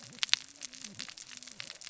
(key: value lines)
label: biophony, cascading saw
recorder: SoundTrap 600 or HydroMoth